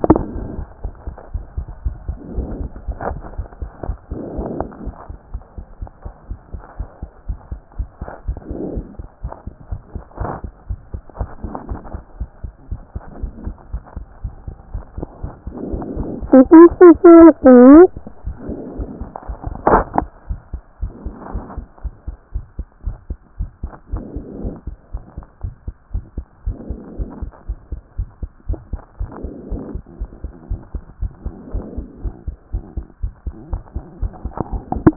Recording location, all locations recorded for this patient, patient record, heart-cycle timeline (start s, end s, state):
pulmonary valve (PV)
aortic valve (AV)+pulmonary valve (PV)+tricuspid valve (TV)+mitral valve (MV)
#Age: Child
#Sex: Male
#Height: 115.0 cm
#Weight: 22.8 kg
#Pregnancy status: False
#Murmur: Absent
#Murmur locations: nan
#Most audible location: nan
#Systolic murmur timing: nan
#Systolic murmur shape: nan
#Systolic murmur grading: nan
#Systolic murmur pitch: nan
#Systolic murmur quality: nan
#Diastolic murmur timing: nan
#Diastolic murmur shape: nan
#Diastolic murmur grading: nan
#Diastolic murmur pitch: nan
#Diastolic murmur quality: nan
#Outcome: Normal
#Campaign: 2014 screening campaign
0.00	5.22	unannotated
5.22	5.32	diastole
5.32	5.42	S1
5.42	5.56	systole
5.56	5.66	S2
5.66	5.80	diastole
5.80	5.90	S1
5.90	6.04	systole
6.04	6.12	S2
6.12	6.28	diastole
6.28	6.38	S1
6.38	6.52	systole
6.52	6.62	S2
6.62	6.78	diastole
6.78	6.88	S1
6.88	7.02	systole
7.02	7.10	S2
7.10	7.28	diastole
7.28	7.38	S1
7.38	7.50	systole
7.50	7.60	S2
7.60	7.78	diastole
7.78	7.88	S1
7.88	8.00	systole
8.00	8.10	S2
8.10	8.28	diastole
8.28	34.96	unannotated